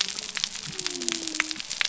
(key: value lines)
label: biophony
recorder: SoundTrap 300